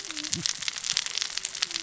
{"label": "biophony, cascading saw", "recorder": "SoundTrap 600 or HydroMoth"}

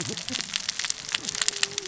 {"label": "biophony, cascading saw", "recorder": "SoundTrap 600 or HydroMoth"}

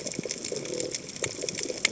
{"label": "biophony", "recorder": "HydroMoth"}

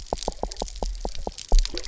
{"label": "biophony, knock", "recorder": "SoundTrap 300"}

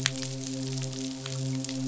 {"label": "biophony, midshipman", "recorder": "SoundTrap 500"}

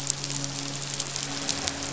{"label": "biophony, midshipman", "recorder": "SoundTrap 500"}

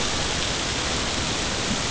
{"label": "ambient", "recorder": "HydroMoth"}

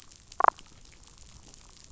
{"label": "biophony, damselfish", "recorder": "SoundTrap 500"}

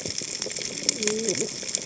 {"label": "biophony, cascading saw", "recorder": "HydroMoth"}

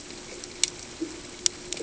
{"label": "ambient", "recorder": "HydroMoth"}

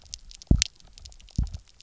{"label": "biophony, double pulse", "recorder": "SoundTrap 300"}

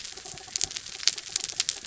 {"label": "anthrophony, mechanical", "recorder": "SoundTrap 300"}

